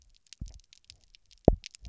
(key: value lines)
label: biophony, double pulse
recorder: SoundTrap 300